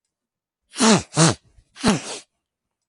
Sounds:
Sniff